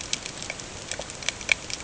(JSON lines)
{"label": "ambient", "recorder": "HydroMoth"}